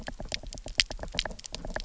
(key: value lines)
label: biophony, knock
recorder: SoundTrap 300